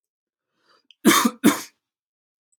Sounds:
Cough